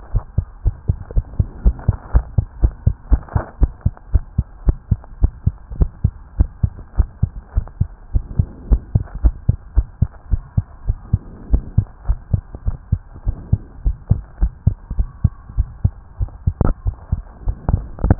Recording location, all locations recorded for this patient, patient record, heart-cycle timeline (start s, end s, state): tricuspid valve (TV)
aortic valve (AV)+pulmonary valve (PV)+tricuspid valve (TV)+mitral valve (MV)
#Age: Child
#Sex: Female
#Height: 98.0 cm
#Weight: 16.6 kg
#Pregnancy status: False
#Murmur: Absent
#Murmur locations: nan
#Most audible location: nan
#Systolic murmur timing: nan
#Systolic murmur shape: nan
#Systolic murmur grading: nan
#Systolic murmur pitch: nan
#Systolic murmur quality: nan
#Diastolic murmur timing: nan
#Diastolic murmur shape: nan
#Diastolic murmur grading: nan
#Diastolic murmur pitch: nan
#Diastolic murmur quality: nan
#Outcome: Normal
#Campaign: 2015 screening campaign
0.00	0.09	unannotated
0.09	0.24	S1
0.24	0.34	systole
0.34	0.46	S2
0.46	0.64	diastole
0.64	0.76	S1
0.76	0.88	systole
0.88	1.00	S2
1.00	1.14	diastole
1.14	1.26	S1
1.26	1.36	systole
1.36	1.48	S2
1.48	1.64	diastole
1.64	1.76	S1
1.76	1.86	systole
1.86	1.98	S2
1.98	2.14	diastole
2.14	2.26	S1
2.26	2.36	systole
2.36	2.46	S2
2.46	2.60	diastole
2.60	2.74	S1
2.74	2.82	systole
2.82	2.94	S2
2.94	3.10	diastole
3.10	3.22	S1
3.22	3.32	systole
3.32	3.42	S2
3.42	3.60	diastole
3.60	3.74	S1
3.74	3.82	systole
3.82	3.94	S2
3.94	4.10	diastole
4.10	4.24	S1
4.24	4.34	systole
4.34	4.48	S2
4.48	4.66	diastole
4.66	4.78	S1
4.78	4.90	systole
4.90	5.00	S2
5.00	5.20	diastole
5.20	5.32	S1
5.32	5.42	systole
5.42	5.54	S2
5.54	5.74	diastole
5.74	5.90	S1
5.90	6.00	systole
6.00	6.14	S2
6.14	6.36	diastole
6.36	6.48	S1
6.48	6.62	systole
6.62	6.74	S2
6.74	6.96	diastole
6.96	7.10	S1
7.10	7.22	systole
7.22	7.32	S2
7.32	7.54	diastole
7.54	7.68	S1
7.68	7.80	systole
7.80	7.90	S2
7.90	8.14	diastole
8.14	8.26	S1
8.26	8.38	systole
8.38	8.48	S2
8.48	8.68	diastole
8.68	8.84	S1
8.84	8.94	systole
8.94	9.06	S2
9.06	9.22	diastole
9.22	9.34	S1
9.34	9.44	systole
9.44	9.58	S2
9.58	9.74	diastole
9.74	9.88	S1
9.88	9.98	systole
9.98	10.12	S2
10.12	10.30	diastole
10.30	10.42	S1
10.42	10.54	systole
10.54	10.66	S2
10.66	10.86	diastole
10.86	10.98	S1
10.98	11.12	systole
11.12	11.22	S2
11.22	11.46	diastole
11.46	11.64	S1
11.64	11.76	systole
11.76	11.88	S2
11.88	12.06	diastole
12.06	12.18	S1
12.18	12.32	systole
12.32	12.44	S2
12.44	12.66	diastole
12.66	12.78	S1
12.78	12.88	systole
12.88	13.02	S2
13.02	13.26	diastole
13.26	13.36	S1
13.36	13.48	systole
13.48	13.62	S2
13.62	13.84	diastole
13.84	13.98	S1
13.98	14.10	systole
14.10	14.22	S2
14.22	14.40	diastole
14.40	14.52	S1
14.52	14.66	systole
14.66	14.78	S2
14.78	14.96	diastole
14.96	15.10	S1
15.10	15.20	systole
15.20	15.34	S2
15.34	15.56	diastole
15.56	15.70	S1
15.70	15.84	systole
15.84	15.98	S2
15.98	16.18	diastole
16.18	16.29	S1
16.29	18.19	unannotated